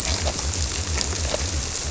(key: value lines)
label: biophony
recorder: SoundTrap 300